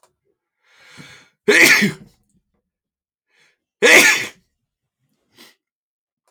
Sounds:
Sneeze